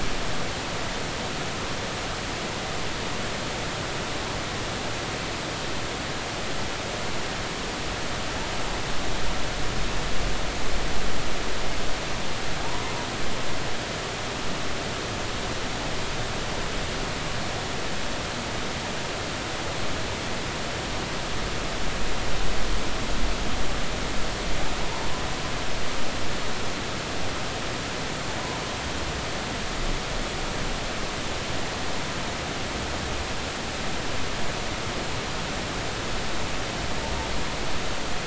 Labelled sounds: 12.6	12.9	humpback whale, 0.80 to 1.1 kHz

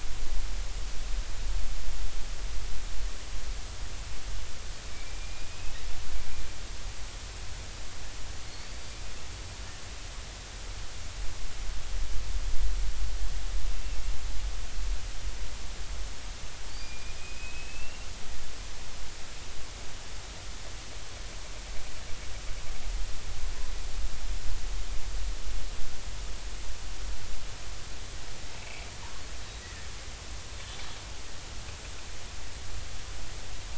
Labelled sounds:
4.9	5.7	killer whale, Bigg's (transient), 2.2 to 2.6 kHz
8.5	8.8	killer whale, Bigg's (transient), 4.3 to 4.6 kHz
16.7	18.1	killer whale, Bigg's (transient), 2.3 to 4.9 kHz
28.6	29.9	killer whale, Bigg's (transient), 1.7 to 2.7 kHz

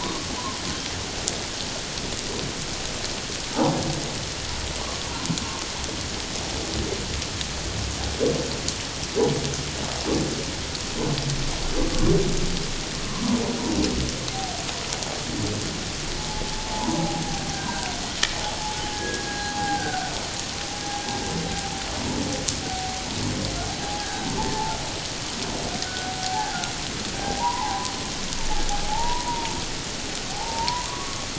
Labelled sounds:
0.0	0.6	humpback whale, 0.84 to 1.2 kHz
16.1	17.9	humpback whale, 0.78 to 1.7 kHz
18.9	20.1	humpback whale, 0.78 to 1.7 kHz
24.0	24.8	humpback whale, 0.81 to 1.7 kHz
25.8	26.6	humpback whale, 0.78 to 1.5 kHz
27.2	27.9	humpback whale, 0.78 to 1.1 kHz
28.8	29.5	humpback whale, 0.78 to 1.0 kHz
30.3	31.3	humpback whale, 0.78 to 1.2 kHz

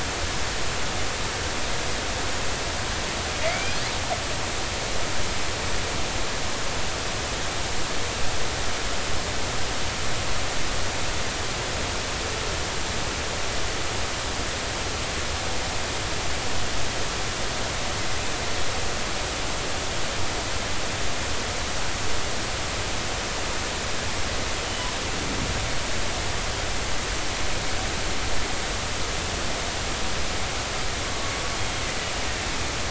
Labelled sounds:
3.4	3.8	killer whale, northern resident, G clan, 2.0 to 2.6 kHz
24.6	24.9	killer whale, northern resident, G clan, 2.9 to 3.1 kHz
31.5	31.8	killer whale, northern resident, G clan, 3.2 to 3.3 kHz

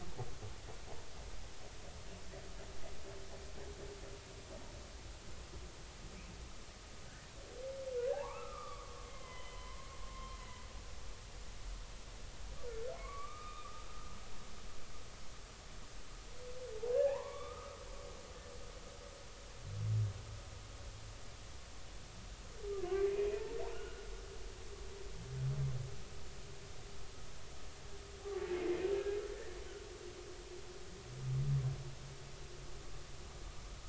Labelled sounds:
7.0	7.3	humpback whale, 1.4 to 1.9 kHz
8.1	10.4	humpback whale, 0.80 to 3.2 kHz
13.0	14.1	humpback whale, 1.0 to 3.7 kHz
16.9	17.8	humpback whale, 0.80 to 2.4 kHz
22.8	24.0	humpback whale, 1.0 to 1.5 kHz
28.5	28.8	humpback whale, 2.0 to 2.2 kHz

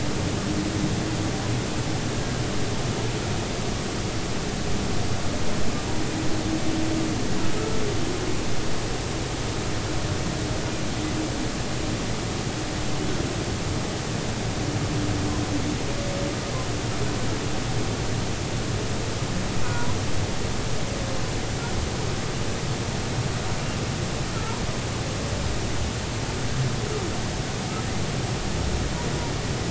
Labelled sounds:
7.6	7.8	humpback whale, 1.2 to 1.4 kHz
19.6	19.9	humpback whale, 0.93 to 1.1 kHz

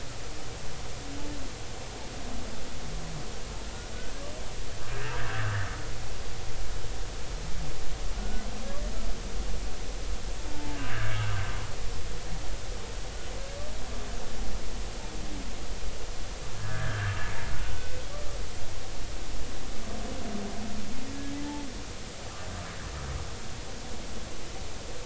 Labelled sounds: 4.9	5.3	humpback whale, 1.5 to 1.9 kHz
8.1	8.4	humpback whale, 1.4 to 1.5 kHz
10.5	11.2	humpback whale, 0.83 to 1.8 kHz
16.6	17.2	humpback whale, 1.4 to 1.8 kHz
17.8	18.0	humpback whale, 2.5 to 2.6 kHz
21.4	21.6	humpback whale, 0.80 to 0.93 kHz

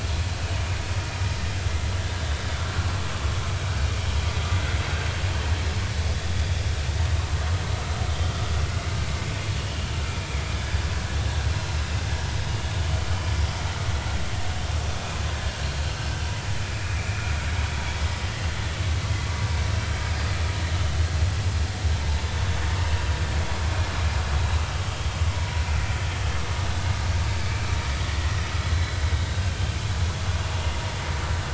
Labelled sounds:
15.3	15.6	vessel noise, 1.6 to 1.8 kHz
16.7	17.3	vessel noise, 2.3 to 2.6 kHz
27.4	27.8	vessel noise, 2.2 to 2.4 kHz
28.7	29.4	vessel noise, 3.7 to 4.1 kHz

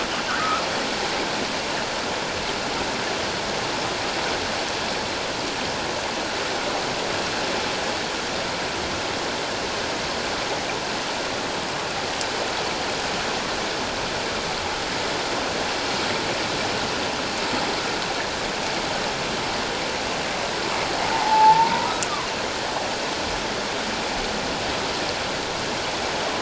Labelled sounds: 0.3	0.6	humpback whale, 1.1 to 1.6 kHz
21.0	21.9	humpback whale, 0.78 to 1.0 kHz

